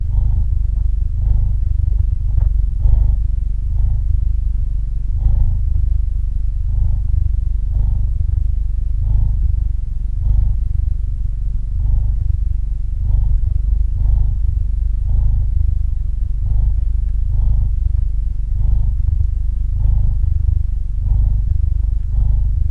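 0.0s A cat is purring steadily. 22.7s
1.8s A noise caused by touching the recording device. 2.5s

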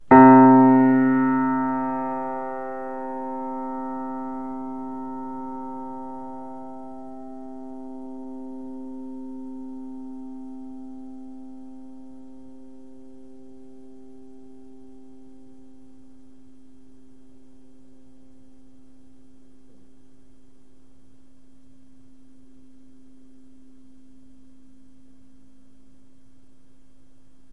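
0.1s One piano note slowly fades out. 27.5s

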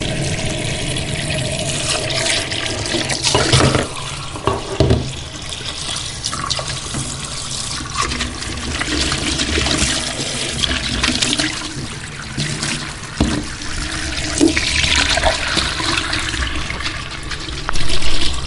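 0.0s Water is streaming loudly from a sink. 18.5s
3.2s Glass slipping and falling into a sink. 4.0s
4.4s A glass is being placed upright. 5.1s
13.2s A thumping noise is heard. 13.5s

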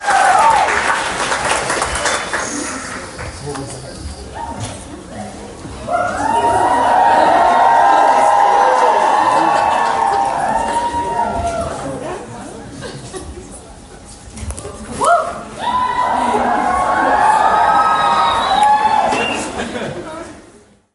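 0.1s Loud applause and cheerful exclamations express excitement and admiration. 3.6s
3.8s A continuous murmur of voices fills the hall. 5.9s
6.0s Excited cheers rise and echo with enthusiastic chanting. 12.4s

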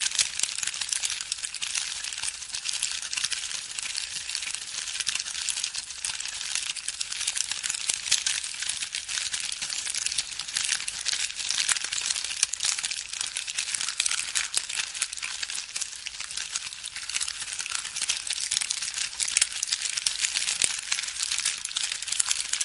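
0.0s Campfire crackling softly. 22.6s

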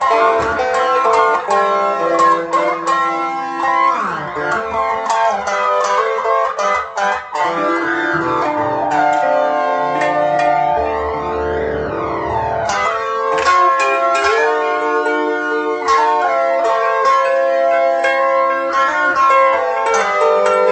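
0.0s An electric guitar plays a continuous, melodic, and rhythmic sound at mid volume. 20.7s

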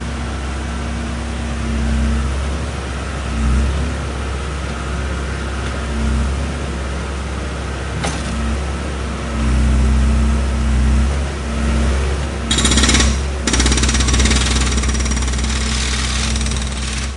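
0.0s A continuous and monotonic buzzing noise. 12.5s
8.0s A sudden thud with background noise. 8.2s
12.5s A rapid, loud, repetitive, and rhythmic pounding of metal machinery. 13.2s
13.5s A rapid, loud, repetitive, and rhythmic pounding of metal machinery fading faintly. 17.2s

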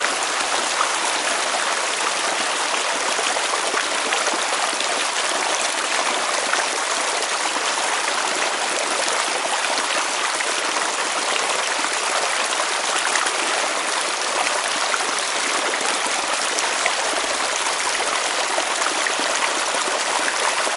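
0.0s Water running continuously and strongly in a stream. 20.8s

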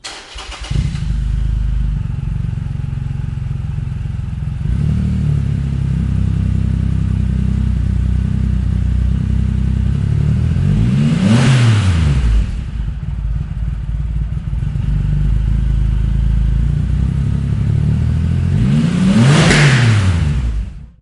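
0.0s A motorcycle engine revs with a deep, powerful exhaust sound. 21.0s

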